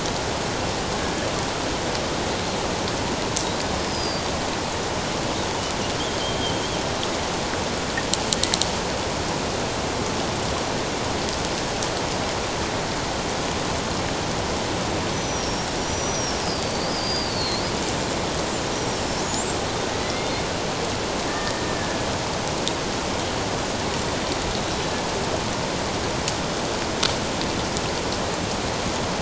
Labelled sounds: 3.9	4.3	killer whale, Bigg's (transient), 4.6 to 5.2 kHz
6.2	6.6	killer whale, Bigg's (transient), 3.0 to 3.3 kHz
15.1	17.6	killer whale, Bigg's (transient), 4.0 to 6.2 kHz
18.7	19.6	killer whale, Bigg's (transient), 5.2 to 7.7 kHz
20.0	20.4	killer whale, Bigg's (transient), 1.9 to 3.6 kHz
21.3	22.1	killer whale, Bigg's (transient), 1.7 to 1.9 kHz
24.6	25.0	killer whale, Bigg's (transient), 3.8 to 4.0 kHz

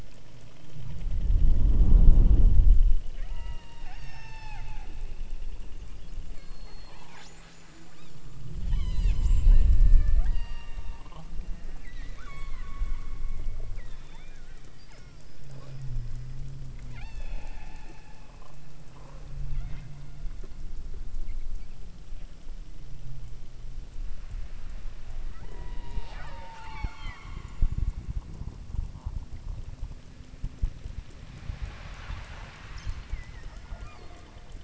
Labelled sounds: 3.1	5.0	killer whale, southern Alaska resident, 0.64 to 8.0 kHz
6.3	7.4	killer whale, southern Alaska resident, 0.78 to 8.0 kHz
7.9	8.3	killer whale, southern Alaska resident, 2.0 to 5.9 kHz
8.6	14.5	killer whale, southern Alaska resident, 0.39 to 8.0 kHz
14.8	15.9	killer whale, southern Alaska resident, 0.37 to 4.8 kHz
16.8	17.5	killer whale, southern Alaska resident, 0.50 to 6.5 kHz
19.5	19.9	killer whale, southern Alaska resident, 1.2 to 4.2 kHz
25.4	27.7	killer whale, southern Alaska resident, 0.21 to 6.7 kHz
33.7	34.3	killer whale, southern Alaska resident, 0.48 to 4.9 kHz

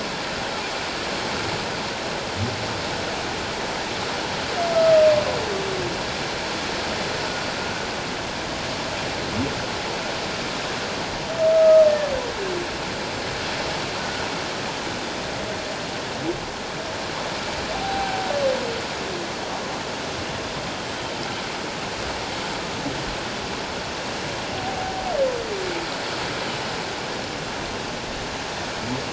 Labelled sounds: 7.2	7.5	humpback whale, 1.3 to 1.5 kHz
11.5	11.8	humpback whale, 1.2 to 1.3 kHz
14.0	14.3	humpback whale, 1.4 to 1.5 kHz
17.7	18.3	humpback whale, 0.78 to 0.84 kHz
24.6	25.0	humpback whale, 0.78 to 0.84 kHz

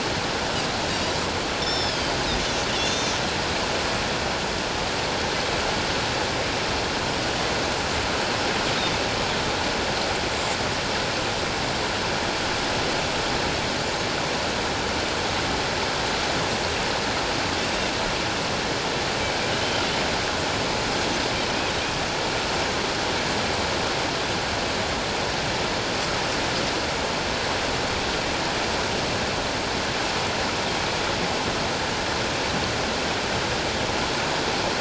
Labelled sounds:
1.6	3.2	Pacific white-sided dolphin, 2.7 to 6.7 kHz

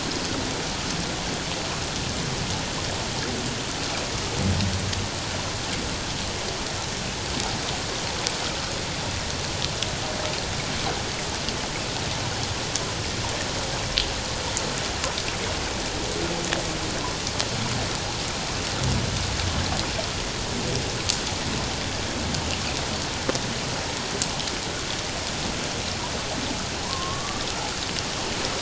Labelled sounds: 26.9	27.4	humpback whale, 0.91 to 1.2 kHz

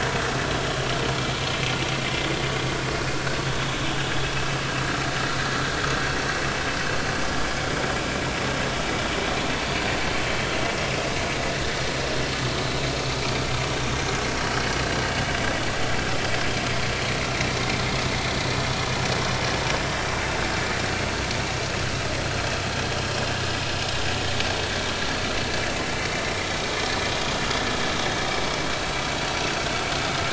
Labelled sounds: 26.0	26.3	vessel noise, 3.7 to 3.9 kHz

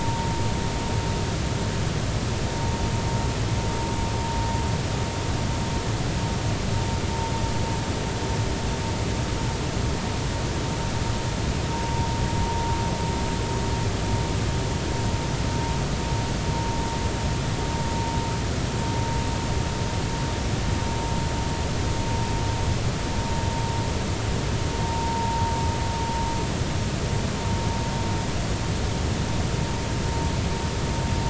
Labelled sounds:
11.7	12.1	vessel noise, 0.90 to 0.99 kHz
24.8	25.4	vessel noise, 0.86 to 0.99 kHz

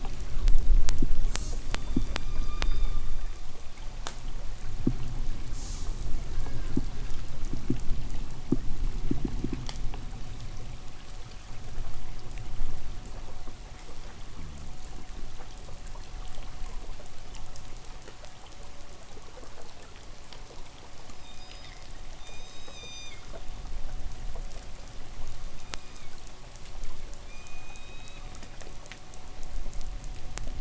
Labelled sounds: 1.2	1.7	killer whale, 2.5 to 8.0 kHz
1.6	3.6	killer whale, K pod, 0.95 to 6.2 kHz
5.3	6.1	killer whale, 3.1 to 8.0 kHz
14.3	14.9	fish, 0 to 0.38 kHz
21.0	23.5	killer whale, K pod, 1.9 to 7.9 kHz
25.4	26.3	killer whale, K pod, 1.9 to 6.4 kHz
27.1	28.7	killer whale, K pod, 2.1 to 7.7 kHz

